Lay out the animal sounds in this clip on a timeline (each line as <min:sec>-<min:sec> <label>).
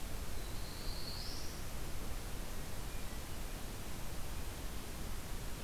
0:00.2-0:01.6 Black-throated Blue Warbler (Setophaga caerulescens)